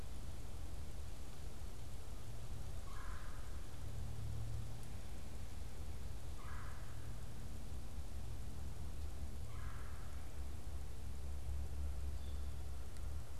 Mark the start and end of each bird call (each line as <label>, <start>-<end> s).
Red-bellied Woodpecker (Melanerpes carolinus), 2.7-3.6 s
Red-bellied Woodpecker (Melanerpes carolinus), 6.2-10.5 s
unidentified bird, 12.0-12.4 s